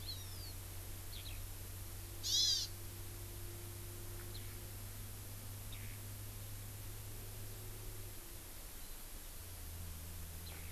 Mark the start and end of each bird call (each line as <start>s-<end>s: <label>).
0.0s-0.5s: Hawaii Amakihi (Chlorodrepanis virens)
1.1s-1.4s: Eurasian Skylark (Alauda arvensis)
2.2s-2.7s: Hawaii Amakihi (Chlorodrepanis virens)
4.3s-4.4s: Eurasian Skylark (Alauda arvensis)
5.7s-6.0s: Eurasian Skylark (Alauda arvensis)
10.4s-10.7s: Eurasian Skylark (Alauda arvensis)